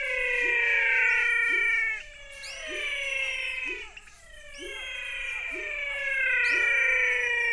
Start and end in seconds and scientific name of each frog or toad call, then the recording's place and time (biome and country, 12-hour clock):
0.0	7.5	Leptodactylus labyrinthicus
0.0	7.5	Physalaemus albonotatus
2.1	7.5	Physalaemus cuvieri
Cerrado, Brazil, 6:30pm